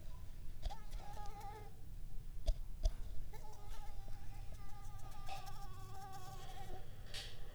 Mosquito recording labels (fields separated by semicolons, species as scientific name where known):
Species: Anopheles arabiensis; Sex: female; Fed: unfed; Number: one; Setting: cup